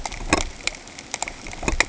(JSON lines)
{"label": "ambient", "recorder": "HydroMoth"}